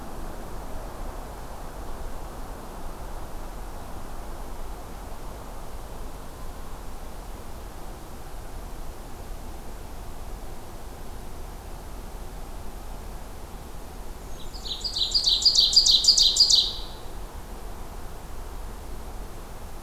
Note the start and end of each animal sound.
[14.19, 15.53] Blackburnian Warbler (Setophaga fusca)
[14.52, 16.67] Ovenbird (Seiurus aurocapilla)

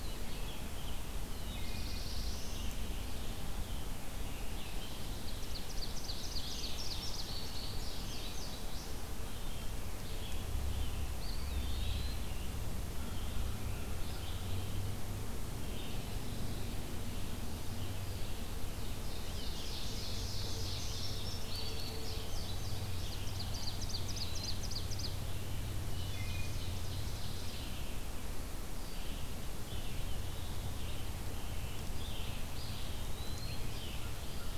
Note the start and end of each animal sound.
[0.00, 1.67] American Robin (Turdus migratorius)
[0.00, 34.58] Red-eyed Vireo (Vireo olivaceus)
[1.13, 2.98] Black-throated Blue Warbler (Setophaga caerulescens)
[4.68, 7.31] Ovenbird (Seiurus aurocapilla)
[6.63, 9.06] Indigo Bunting (Passerina cyanea)
[10.07, 12.17] American Robin (Turdus migratorius)
[11.01, 12.38] Eastern Wood-Pewee (Contopus virens)
[19.05, 21.08] Ovenbird (Seiurus aurocapilla)
[20.93, 23.27] Indigo Bunting (Passerina cyanea)
[22.93, 25.20] Ovenbird (Seiurus aurocapilla)
[23.46, 24.57] Eastern Wood-Pewee (Contopus virens)
[25.88, 26.67] Wood Thrush (Hylocichla mustelina)
[25.93, 27.88] Ovenbird (Seiurus aurocapilla)
[29.64, 31.93] American Robin (Turdus migratorius)
[32.43, 33.85] Eastern Wood-Pewee (Contopus virens)
[33.77, 34.58] American Crow (Corvus brachyrhynchos)

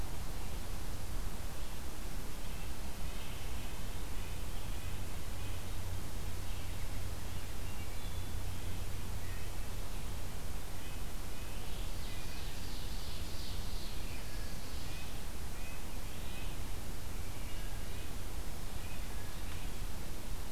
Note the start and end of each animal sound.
[2.33, 12.44] Red-breasted Nuthatch (Sitta canadensis)
[11.89, 14.24] Ovenbird (Seiurus aurocapilla)
[13.99, 19.87] Red-breasted Nuthatch (Sitta canadensis)

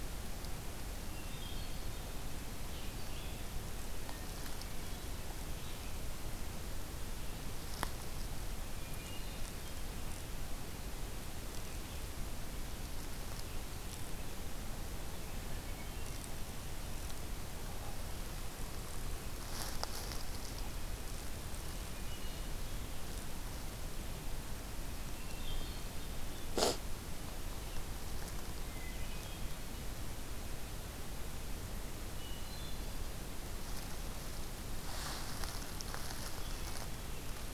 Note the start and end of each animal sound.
[0.86, 2.00] Hermit Thrush (Catharus guttatus)
[2.62, 6.07] Red-eyed Vireo (Vireo olivaceus)
[8.39, 9.98] Hermit Thrush (Catharus guttatus)
[15.17, 16.84] Hermit Thrush (Catharus guttatus)
[21.77, 22.88] Hermit Thrush (Catharus guttatus)
[25.02, 26.24] Hermit Thrush (Catharus guttatus)
[28.51, 29.71] Hermit Thrush (Catharus guttatus)
[31.89, 33.12] Hermit Thrush (Catharus guttatus)

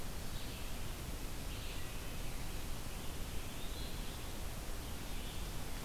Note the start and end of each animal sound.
[0.00, 5.84] Red-eyed Vireo (Vireo olivaceus)
[3.27, 4.03] Eastern Wood-Pewee (Contopus virens)

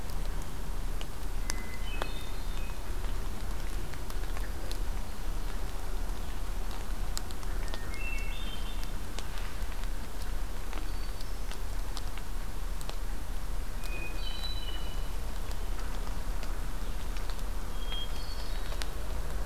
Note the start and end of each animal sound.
[1.40, 2.81] Hermit Thrush (Catharus guttatus)
[4.28, 5.52] Hermit Thrush (Catharus guttatus)
[7.57, 9.14] Hermit Thrush (Catharus guttatus)
[10.56, 11.47] Hermit Thrush (Catharus guttatus)
[13.82, 15.28] Hermit Thrush (Catharus guttatus)
[17.75, 19.02] Hermit Thrush (Catharus guttatus)

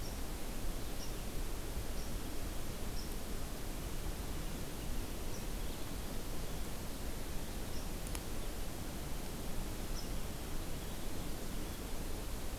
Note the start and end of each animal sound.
[0.00, 10.20] unidentified call

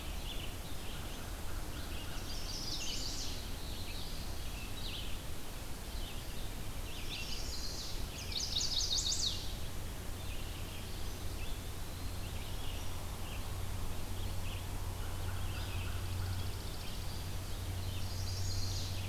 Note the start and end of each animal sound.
[0.00, 19.09] Red-eyed Vireo (Vireo olivaceus)
[0.77, 2.34] American Crow (Corvus brachyrhynchos)
[2.12, 3.51] Chestnut-sided Warbler (Setophaga pensylvanica)
[3.17, 4.31] Black-throated Blue Warbler (Setophaga caerulescens)
[6.92, 9.52] Chestnut-sided Warbler (Setophaga pensylvanica)
[10.89, 12.27] Eastern Wood-Pewee (Contopus virens)
[15.72, 17.23] Chipping Sparrow (Spizella passerina)
[17.83, 19.05] Chestnut-sided Warbler (Setophaga pensylvanica)

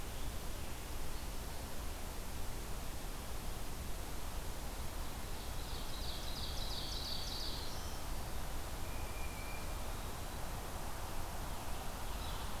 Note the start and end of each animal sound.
[4.94, 7.92] Ovenbird (Seiurus aurocapilla)
[6.84, 8.05] Black-throated Green Warbler (Setophaga virens)
[8.73, 9.82] Tufted Titmouse (Baeolophus bicolor)
[12.14, 12.31] Yellow-bellied Sapsucker (Sphyrapicus varius)

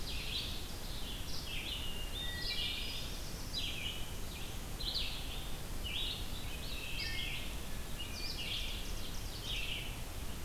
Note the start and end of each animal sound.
[0.00, 0.92] Ovenbird (Seiurus aurocapilla)
[0.00, 10.45] Red-eyed Vireo (Vireo olivaceus)
[2.15, 3.26] Hermit Thrush (Catharus guttatus)
[6.80, 7.49] Wood Thrush (Hylocichla mustelina)
[8.22, 10.04] Ovenbird (Seiurus aurocapilla)

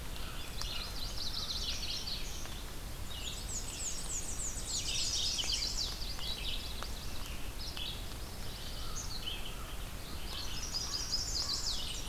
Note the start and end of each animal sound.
[0.00, 1.72] American Crow (Corvus brachyrhynchos)
[0.00, 12.08] Red-eyed Vireo (Vireo olivaceus)
[0.43, 2.28] Yellow-rumped Warbler (Setophaga coronata)
[3.10, 5.15] Black-and-white Warbler (Mniotilta varia)
[3.33, 5.66] Tennessee Warbler (Leiothlypis peregrina)
[4.51, 5.83] Mourning Warbler (Geothlypis philadelphia)
[4.74, 6.07] Chestnut-sided Warbler (Setophaga pensylvanica)
[5.80, 7.06] Yellow-rumped Warbler (Setophaga coronata)
[8.53, 12.08] American Crow (Corvus brachyrhynchos)
[10.41, 11.85] Chestnut-sided Warbler (Setophaga pensylvanica)

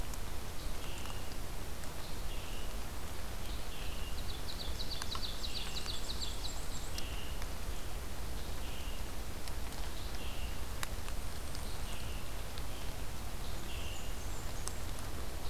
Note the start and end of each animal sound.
[0.00, 7.40] Scarlet Tanager (Piranga olivacea)
[3.60, 6.67] Ovenbird (Seiurus aurocapilla)
[5.39, 6.97] Black-and-white Warbler (Mniotilta varia)
[8.24, 14.26] Scarlet Tanager (Piranga olivacea)
[13.28, 14.92] Blackburnian Warbler (Setophaga fusca)

